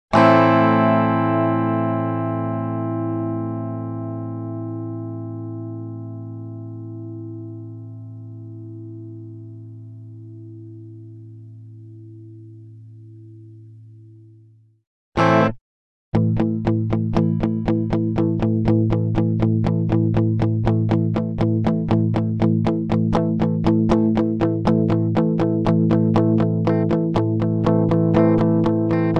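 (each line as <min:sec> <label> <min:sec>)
0:00.1 An electric guitar plays a single chord that fades out. 0:14.8
0:15.1 An electric guitar plays a single chord. 0:15.6
0:16.1 An electric guitar is being played rhythmically. 0:29.2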